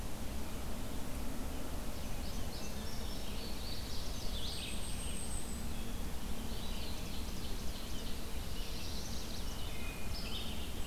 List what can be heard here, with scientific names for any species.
Vireo olivaceus, Passerina cyanea, Setophaga striata, Contopus virens, Seiurus aurocapilla, Setophaga caerulescens, Setophaga pensylvanica, Hylocichla mustelina